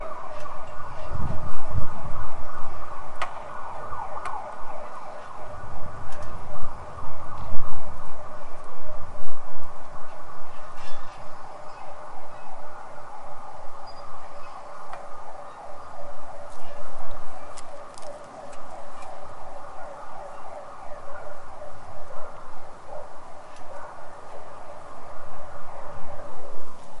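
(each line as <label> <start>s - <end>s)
An ambulance siren wails loudly with a high-pitched, oscillating tone. 0.0s - 27.0s
Wind softly sways a swing, producing slow rhythmic creaking sounds. 10.7s - 18.7s
Wind blows, rustling and scattering leaves or paper with soft, irregular fluttering sounds. 16.3s - 20.1s
A dog barks softly and intermittently in the distance. 21.6s - 25.0s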